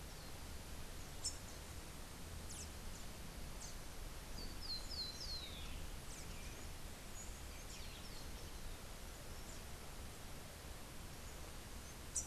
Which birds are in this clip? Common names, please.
Rufous-capped Warbler, Rufous-collared Sparrow